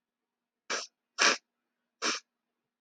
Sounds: Sniff